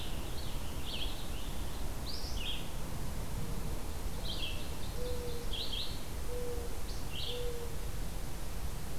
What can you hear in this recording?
Purple Finch, Red-eyed Vireo, Mourning Dove, Ovenbird